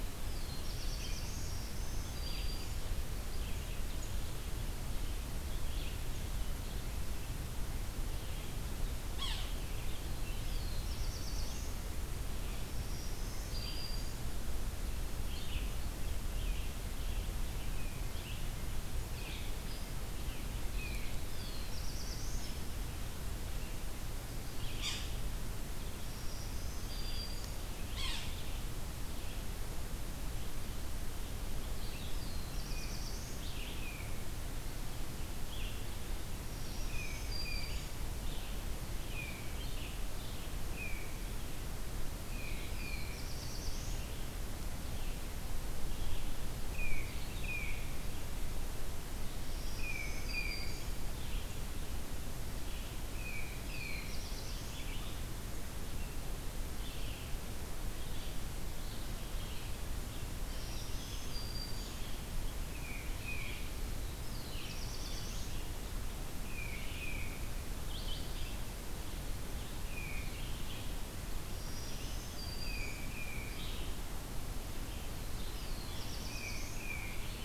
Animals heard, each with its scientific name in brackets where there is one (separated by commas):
Black-throated Blue Warbler (Setophaga caerulescens), Yellow-bellied Sapsucker (Sphyrapicus varius), Black-throated Green Warbler (Setophaga virens), Red-eyed Vireo (Vireo olivaceus), Tufted Titmouse (Baeolophus bicolor)